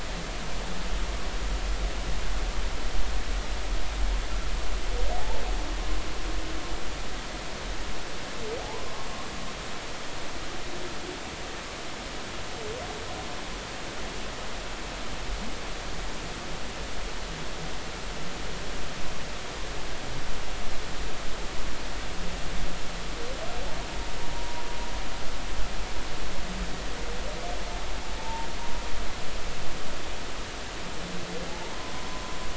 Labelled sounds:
8.6	9.1	humpback whale, 0.80 to 1.1 kHz
24.3	24.6	humpback whale, 0.93 to 1.0 kHz
28.2	28.5	humpback whale, 0.83 to 0.99 kHz
31.5	31.7	humpback whale, 0.80 to 0.99 kHz

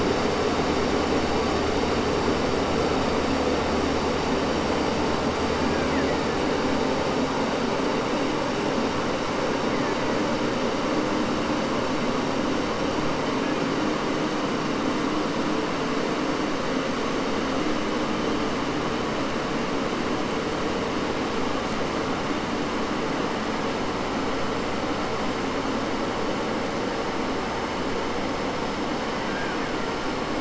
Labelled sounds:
5.6	6.4	killer whale, Bigg's (transient), 0.83 to 2.9 kHz
9.5	10.4	killer whale, Bigg's (transient), 1.0 to 3.2 kHz
13.1	14.0	killer whale, Bigg's (transient), 1.0 to 3.0 kHz
29.2	30.3	killer whale, Bigg's (transient), 0.10 to 3.0 kHz

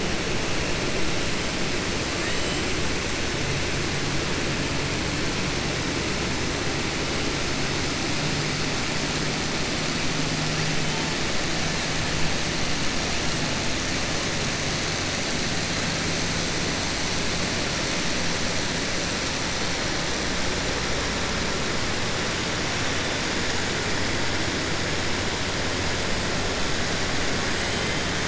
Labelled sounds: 2.1	2.6	killer whale, southern resident, 1.2 to 4.0 kHz

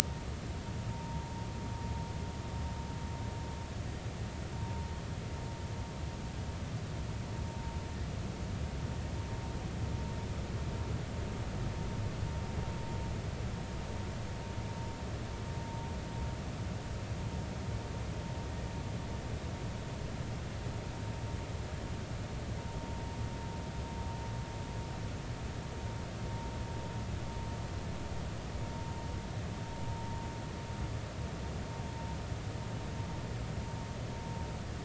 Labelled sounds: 0.9	1.2	vessel noise, 0.86 to 0.99 kHz
4.6	4.9	vessel noise, 0.86 to 0.99 kHz

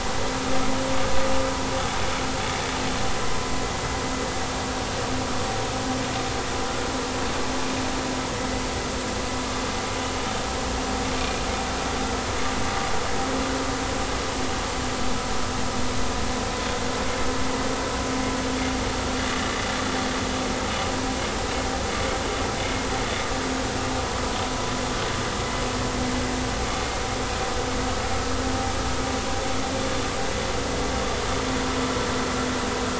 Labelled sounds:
11.2	11.4	vessel noise, 2.3 to 2.5 kHz

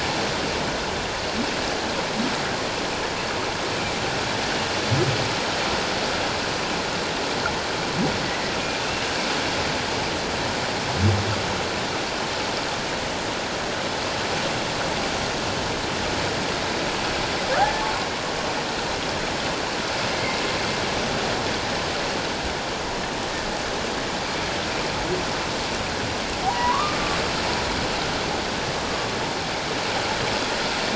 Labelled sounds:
8.2	8.5	humpback whale, 1.9 to 2.1 kHz
17.6	17.9	humpback whale, 0.78 to 1.8 kHz
20.1	20.4	humpback whale, 2.0 to 2.3 kHz
26.5	27.0	humpback whale, 0.91 to 1.3 kHz

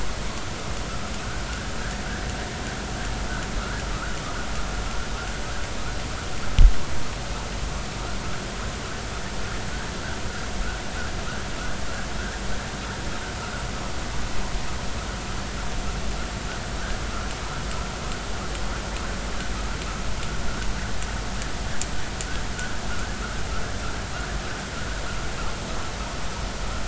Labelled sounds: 1.8	2.0	vessel noise, 1.4 to 1.9 kHz
3.9	4.2	vessel noise, 1.1 to 1.6 kHz

